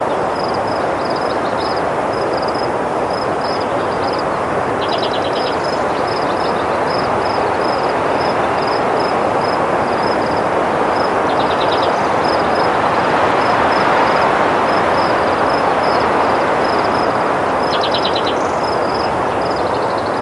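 Moderately strong wind howls in the background with cricket chirping. 0.0 - 6.7
Loud, strong wind howls in the background with crickets chirping. 6.9 - 20.2

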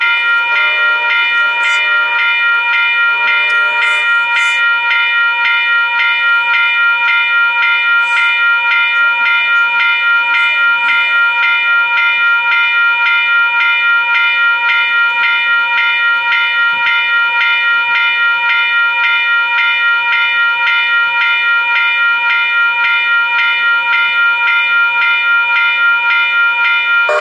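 A bell rings continuously. 0.0 - 27.2

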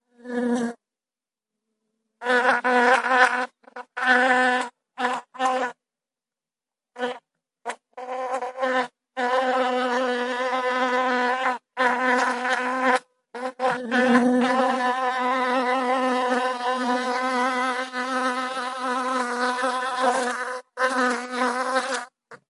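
A person imitates buzzing. 0.1 - 1.2
An insect buzzes loudly and repeatedly. 2.1 - 6.0
An insect buzzes loudly and repeatedly. 6.8 - 9.0
An insect is buzzing continuously. 9.1 - 22.5
A person imitates buzzing. 13.3 - 15.1

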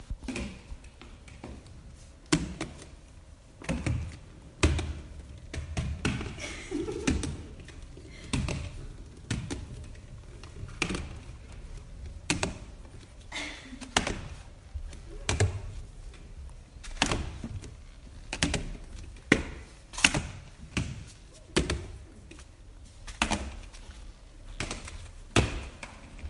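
A brief, loud clatter as roller skates hit stairs, sharp and echoing indoors. 0.4 - 0.9
A brief, loud clatter as roller skates hit stairs, sharp and echoing indoors. 2.2 - 2.8
A brief, loud clatter as roller skates hit stairs, sharp and echoing indoors. 3.6 - 6.3
A young woman giggling softly. 6.3 - 7.2
A brief, loud clatter as roller skates hit stairs, sharp and echoing indoors. 6.9 - 7.5
A brief, loud clatter as roller skates hit stairs, sharp and echoing indoors. 8.2 - 9.7
A brief, loud clatter as roller skates hit stairs, sharp and echoing indoors. 10.7 - 11.1
A brief, loud clatter as roller skates hit stairs, sharp and echoing indoors. 12.1 - 12.7
A woman exhales softly while walking down the stairs. 13.3 - 13.7
A brief, loud clatter as roller skates hit stairs, sharp and echoing indoors. 13.9 - 14.3
A brief, loud clatter as roller skates hit stairs, sharp and echoing indoors. 15.2 - 15.7
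A brief, loud clatter as roller skates hit stairs, sharp and echoing indoors. 16.8 - 18.8
A brief, loud clatter echoes indoors as rollerskates repeatedly hit stairs. 19.2 - 21.9
A brief, loud clatter as roller skates hit stairs, sharp and echoing indoors. 23.0 - 23.7
A brief, loud clatter echoes indoors as rollerskates repeatedly hit stairs. 24.5 - 25.8

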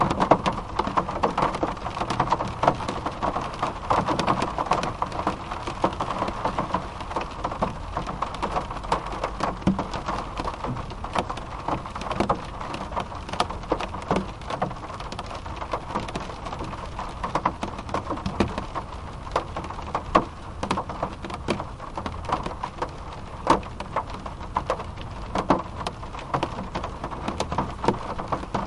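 Moderately intense raindrops continuously and steadily hitting a metal surface outdoors. 0.0 - 28.7

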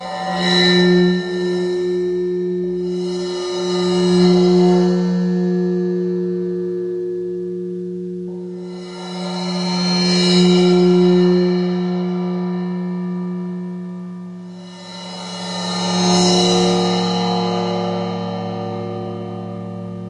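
A cymbal swell gradually builds into a high-pitched sound. 0.2 - 19.8

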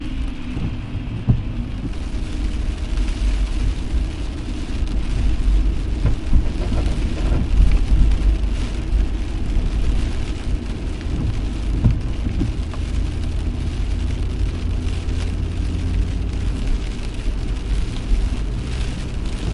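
A car is driving continuously with engine noise and road sounds. 0.0 - 19.5
Windshield wipers move in a repeating swishing pattern. 0.9 - 2.1
Rain falls steadily on a car, producing a rhythmic pattering sound. 1.9 - 19.5
Windshield wipers move in a repeating swishing pattern. 11.2 - 12.3

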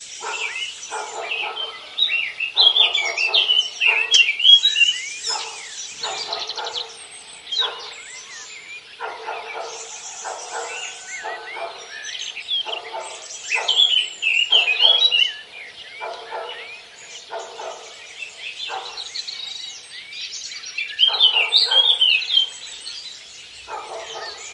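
Multiple birds are singing loudly at various distances. 0.0 - 24.5
A dog barks in the distance. 0.2 - 6.8
A dog barks repeatedly in the distance. 7.4 - 24.5

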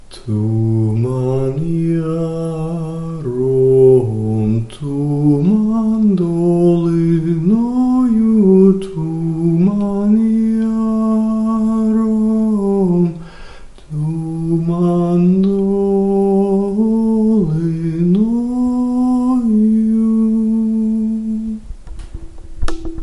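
A male is singing a cappella. 0.2 - 13.2

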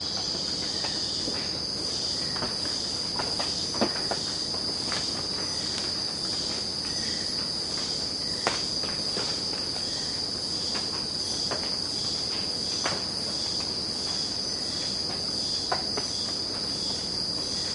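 Crickets chirp steadily. 0.0 - 17.7
Raindrops falling onto the earth in an irregular pattern. 0.0 - 17.7
An animal chirps briefly in the distance. 0.7 - 1.0
An animal chirps briefly in the distance. 2.0 - 2.4
An animal chirps briefly in the distance. 3.7 - 4.2
An animal chirps briefly in the distance. 5.2 - 5.9
An animal chirps briefly in the distance. 6.6 - 7.5
An animal chirps briefly in the distance. 8.2 - 8.7
An animal chirps briefly in the distance. 9.8 - 10.3
An animal chirps briefly in the distance. 14.5 - 15.2
An animal chirps briefly in the distance. 17.5 - 17.7

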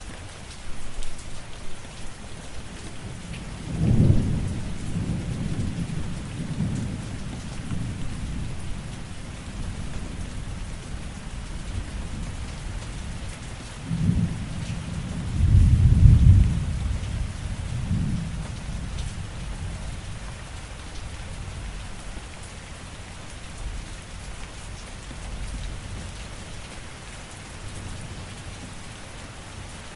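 Heavy rainfall with occasional thunder and lightning. 3.3 - 6.5
Heavy rain with occasional thunder and lightning. 13.8 - 19.0
Heavy rainfall. 21.0 - 30.0

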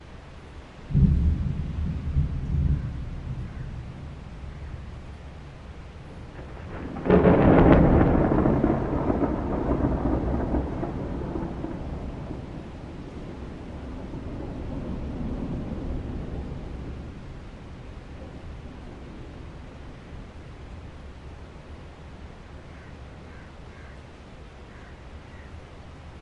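Thunder blasts in the distance dissipate amid the hum of rain. 0.7 - 4.0
An explosive thunderclap that is loud and cracking at first, then gradually fades. 6.7 - 12.6
Thunder rumbles in the distance, muffled by the rain. 13.6 - 17.3

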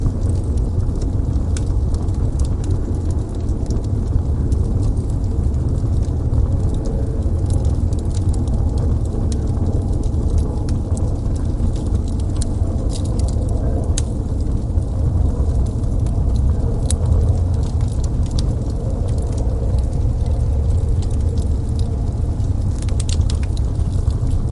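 Wood pieces burning in a fireplace. 0.0 - 24.5

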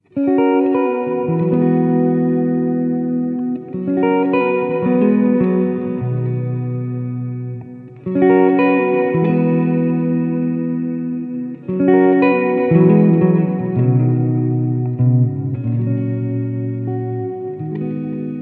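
An electric guitar plays recurring harmonic patterns, typically used for background layers or structured improvisation. 0.0 - 18.4

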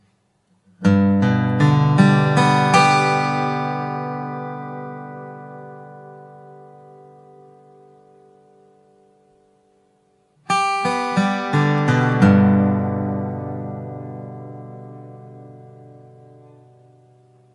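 An acoustic guitar plucks chords repeatedly with gradually increasing volume. 0.8 - 3.4
The sound of an acoustic guitar chord fading away. 3.5 - 10.4
An acoustic guitar repeatedly plucks a chord with gradually decreasing volume. 10.5 - 13.1
The sound of an acoustic guitar chord fading away. 13.1 - 17.5

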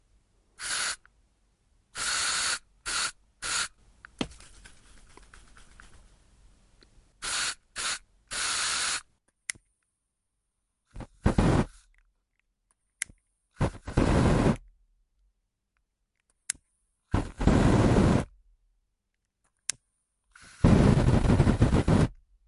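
A loud spraying sound with a rhythmic pattern. 0.5 - 4.3
A wiping sound fading away. 4.4 - 7.2
A loud spraying sound with a rhythmic pattern. 7.2 - 9.1
A lighter is ignited loudly. 9.4 - 9.6
A strong burst of fire fades away. 10.9 - 11.8
A lighter is struck loudly. 12.7 - 13.2
A strong burst of fire fades away. 13.6 - 14.7
A lighter is struck loudly. 16.3 - 16.6
A strong burst of fire fades away. 17.1 - 18.3
A lighter is struck loudly. 19.6 - 19.9
A strong burst of fire fades away. 20.6 - 22.2

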